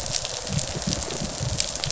{"label": "biophony", "recorder": "SoundTrap 500"}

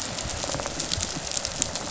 {"label": "biophony, rattle response", "recorder": "SoundTrap 500"}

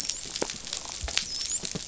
{"label": "biophony, dolphin", "recorder": "SoundTrap 500"}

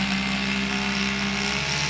{"label": "anthrophony, boat engine", "recorder": "SoundTrap 500"}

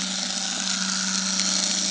{"label": "anthrophony, boat engine", "recorder": "HydroMoth"}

